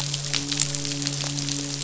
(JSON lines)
{"label": "biophony, midshipman", "recorder": "SoundTrap 500"}